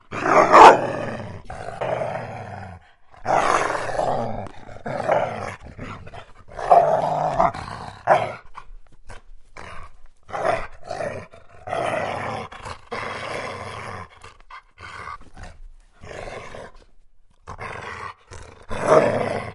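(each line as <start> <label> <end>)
0.0 A dog growls loudly with occasional short pauses. 19.5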